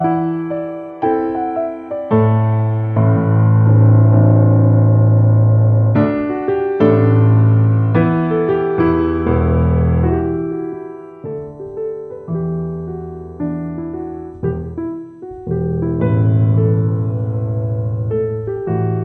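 0.0s Atmospheric and tranquil solo piano playing with dynamic and staccato elements. 19.0s

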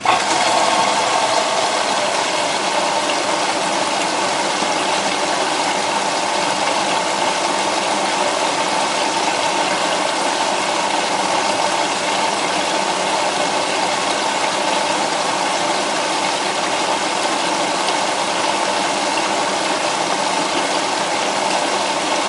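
0.1s A washing machine whirs steadily while water splashes rhythmically. 22.2s

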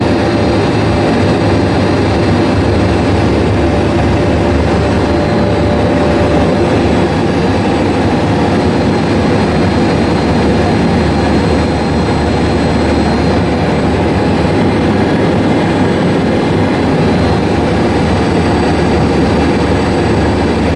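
0.0s A high-pitched sound of air propelled by a boat jet. 20.8s

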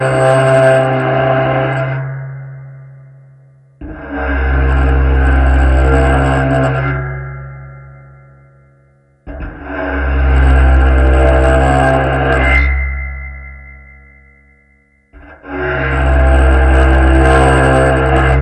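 0.0s Continuous deep, hollow, and intense metal sound echoing and fading. 15.2s
15.2s Continuous deep, hollow, and intense metal sound. 18.4s

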